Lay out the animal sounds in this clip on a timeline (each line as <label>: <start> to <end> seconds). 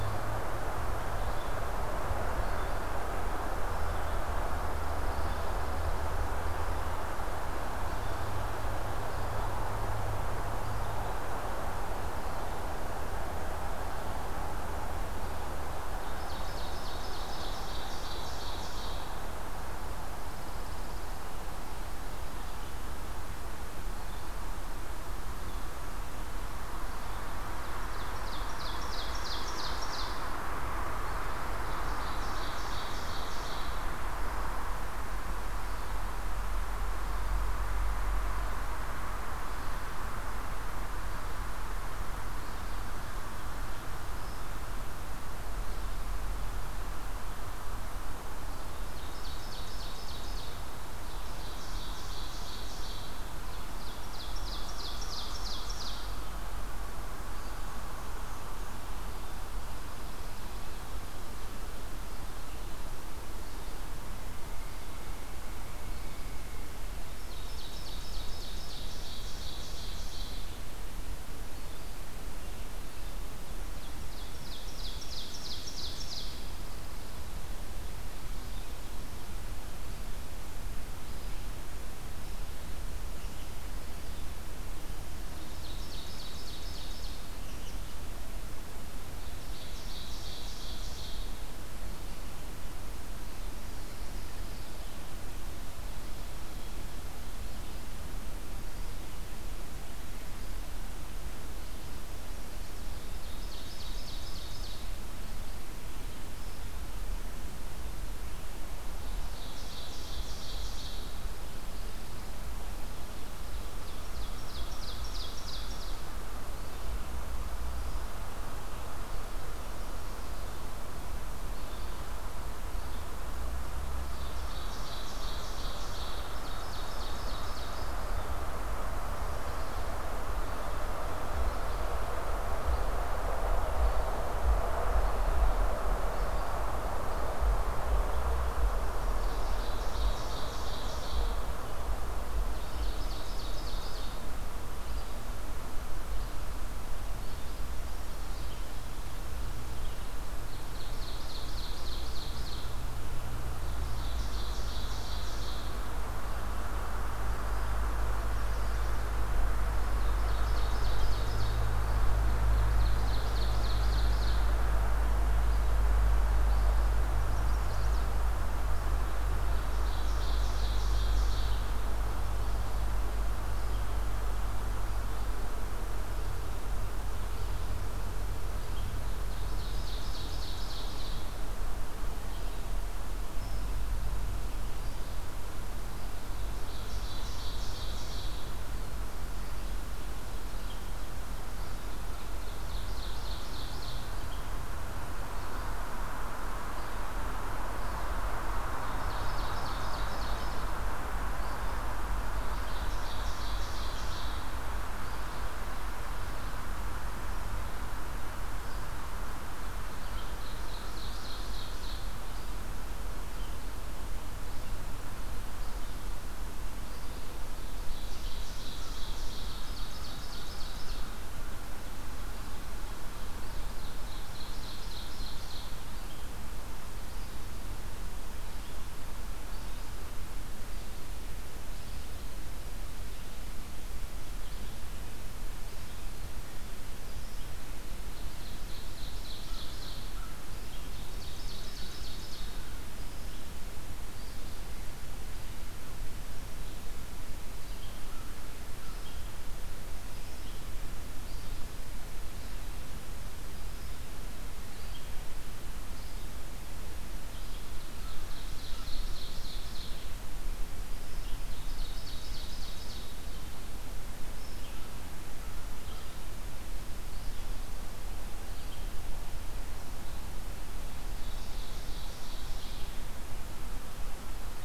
Red-eyed Vireo (Vireo olivaceus): 0.0 to 15.5 seconds
Pine Warbler (Setophaga pinus): 4.6 to 6.0 seconds
Ovenbird (Seiurus aurocapilla): 15.8 to 19.1 seconds
Pine Warbler (Setophaga pinus): 19.9 to 21.3 seconds
Red-eyed Vireo (Vireo olivaceus): 22.2 to 78.8 seconds
Ovenbird (Seiurus aurocapilla): 27.8 to 30.2 seconds
Ovenbird (Seiurus aurocapilla): 31.5 to 33.9 seconds
Ovenbird (Seiurus aurocapilla): 48.9 to 50.6 seconds
Ovenbird (Seiurus aurocapilla): 50.9 to 56.3 seconds
Black-and-white Warbler (Mniotilta varia): 57.4 to 58.8 seconds
Pileated Woodpecker (Dryocopus pileatus): 64.3 to 66.8 seconds
Ovenbird (Seiurus aurocapilla): 66.9 to 70.7 seconds
Ovenbird (Seiurus aurocapilla): 73.6 to 76.4 seconds
Pine Warbler (Setophaga pinus): 76.0 to 77.3 seconds
Red-eyed Vireo (Vireo olivaceus): 79.4 to 136.6 seconds
Ovenbird (Seiurus aurocapilla): 85.0 to 87.3 seconds
American Robin (Turdus migratorius): 87.3 to 87.8 seconds
Ovenbird (Seiurus aurocapilla): 89.0 to 91.6 seconds
Pine Warbler (Setophaga pinus): 93.7 to 95.0 seconds
Ovenbird (Seiurus aurocapilla): 103.0 to 105.0 seconds
Ovenbird (Seiurus aurocapilla): 108.9 to 111.1 seconds
Pine Warbler (Setophaga pinus): 111.2 to 112.4 seconds
Ovenbird (Seiurus aurocapilla): 113.3 to 116.1 seconds
Ovenbird (Seiurus aurocapilla): 123.9 to 128.1 seconds
Ovenbird (Seiurus aurocapilla): 139.1 to 141.6 seconds
Red-eyed Vireo (Vireo olivaceus): 141.4 to 195.8 seconds
Ovenbird (Seiurus aurocapilla): 142.5 to 144.3 seconds
Ovenbird (Seiurus aurocapilla): 150.3 to 152.8 seconds
Ovenbird (Seiurus aurocapilla): 153.5 to 156.0 seconds
Ovenbird (Seiurus aurocapilla): 159.7 to 161.6 seconds
Ovenbird (Seiurus aurocapilla): 162.1 to 164.5 seconds
Chestnut-sided Warbler (Setophaga pensylvanica): 167.1 to 168.0 seconds
Ovenbird (Seiurus aurocapilla): 169.5 to 172.0 seconds
Ovenbird (Seiurus aurocapilla): 179.0 to 181.3 seconds
Ovenbird (Seiurus aurocapilla): 186.3 to 188.5 seconds
Ovenbird (Seiurus aurocapilla): 191.9 to 194.1 seconds
Red-eyed Vireo (Vireo olivaceus): 196.5 to 255.3 seconds
Ovenbird (Seiurus aurocapilla): 198.7 to 200.7 seconds
Ovenbird (Seiurus aurocapilla): 202.3 to 204.6 seconds
Ovenbird (Seiurus aurocapilla): 209.9 to 212.2 seconds
Ovenbird (Seiurus aurocapilla): 217.8 to 221.2 seconds
Ovenbird (Seiurus aurocapilla): 223.6 to 225.7 seconds
Ovenbird (Seiurus aurocapilla): 238.0 to 240.3 seconds
Ovenbird (Seiurus aurocapilla): 240.7 to 242.5 seconds
Red-eyed Vireo (Vireo olivaceus): 255.7 to 274.6 seconds
Ovenbird (Seiurus aurocapilla): 257.2 to 260.1 seconds
Ovenbird (Seiurus aurocapilla): 261.3 to 263.2 seconds
American Crow (Corvus brachyrhynchos): 264.6 to 266.3 seconds
Ovenbird (Seiurus aurocapilla): 270.9 to 272.9 seconds